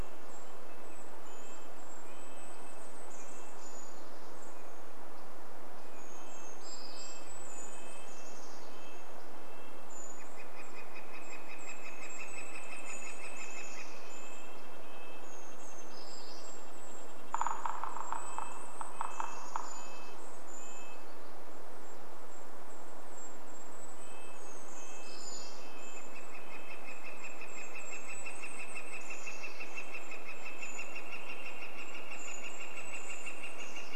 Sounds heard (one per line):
Northern Flicker call
Red-breasted Nuthatch call
Golden-crowned Kinglet song
Brown Creeper call
Red-breasted Nuthatch song
Brown Creeper song
Golden-crowned Kinglet call